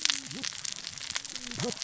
{"label": "biophony, cascading saw", "recorder": "SoundTrap 600 or HydroMoth"}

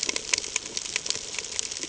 {"label": "ambient", "recorder": "HydroMoth"}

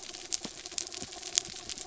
{"label": "anthrophony, mechanical", "recorder": "SoundTrap 300"}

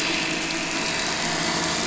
{"label": "anthrophony, boat engine", "recorder": "SoundTrap 500"}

